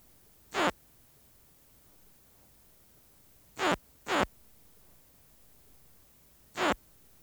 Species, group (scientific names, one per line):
Poecilimon luschani
Orthoptera